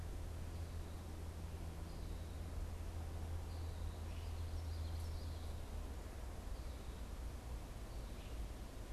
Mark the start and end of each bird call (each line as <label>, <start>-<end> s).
Common Yellowthroat (Geothlypis trichas), 3.7-5.6 s